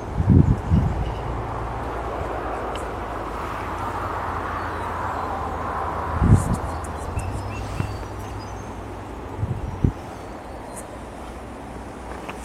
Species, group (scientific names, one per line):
Yoyetta humphreyae
Cicadidae